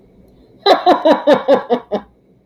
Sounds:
Laughter